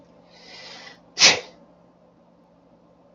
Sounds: Sneeze